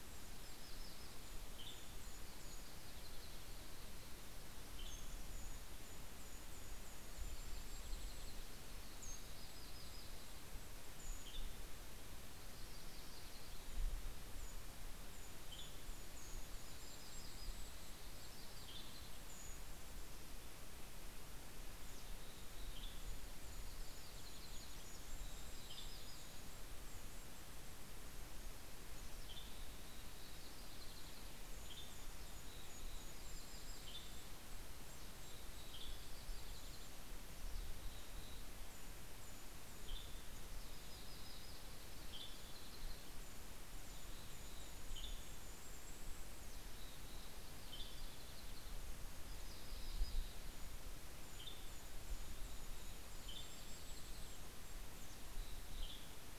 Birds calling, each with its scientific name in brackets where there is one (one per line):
Western Tanager (Piranga ludoviciana)
Yellow-rumped Warbler (Setophaga coronata)
Golden-crowned Kinglet (Regulus satrapa)
Mountain Chickadee (Poecile gambeli)